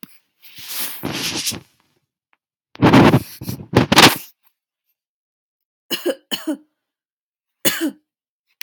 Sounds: Cough